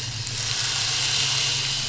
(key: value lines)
label: anthrophony, boat engine
recorder: SoundTrap 500